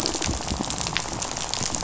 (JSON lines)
{"label": "biophony, rattle", "recorder": "SoundTrap 500"}